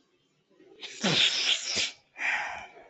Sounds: Sniff